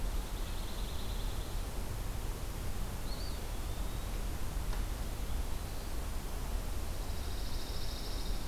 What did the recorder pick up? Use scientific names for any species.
Setophaga pinus, Contopus virens